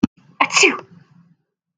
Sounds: Sneeze